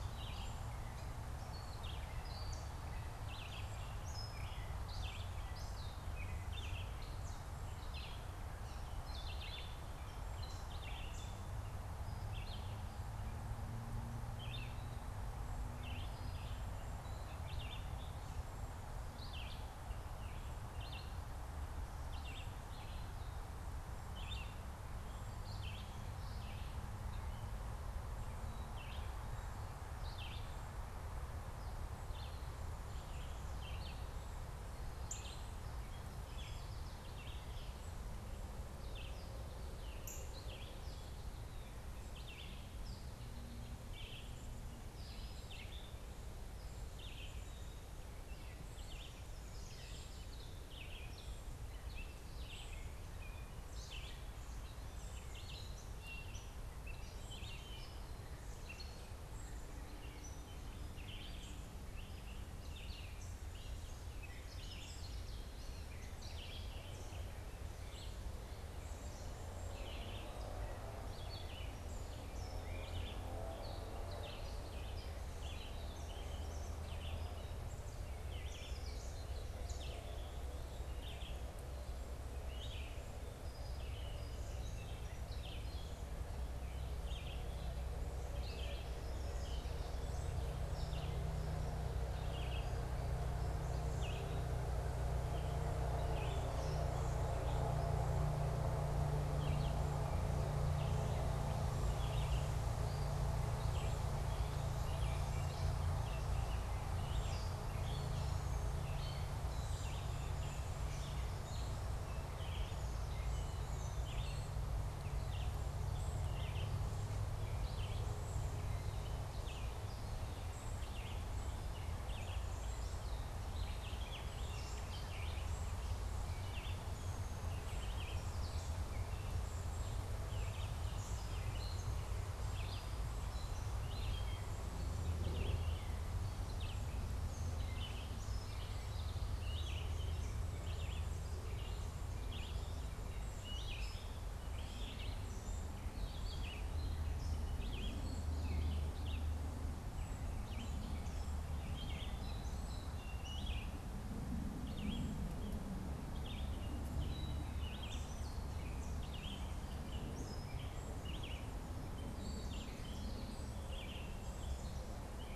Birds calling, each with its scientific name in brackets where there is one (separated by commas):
Gray Catbird (Dumetella carolinensis), Cedar Waxwing (Bombycilla cedrorum), Northern Cardinal (Cardinalis cardinalis), Yellow Warbler (Setophaga petechia), Red-eyed Vireo (Vireo olivaceus)